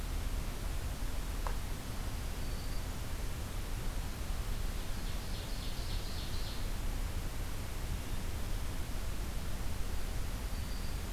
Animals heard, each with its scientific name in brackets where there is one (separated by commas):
Black-throated Green Warbler (Setophaga virens), Ovenbird (Seiurus aurocapilla)